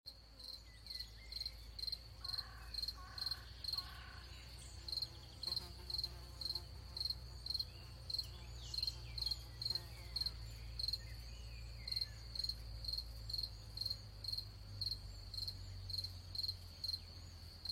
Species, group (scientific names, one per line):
Gryllus campestris
Orthoptera